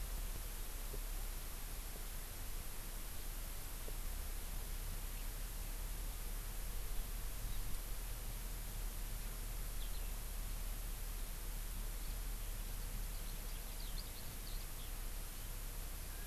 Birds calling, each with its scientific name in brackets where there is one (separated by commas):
Eurasian Skylark (Alauda arvensis), Hawaii Amakihi (Chlorodrepanis virens)